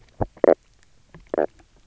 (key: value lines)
label: biophony, knock croak
recorder: SoundTrap 300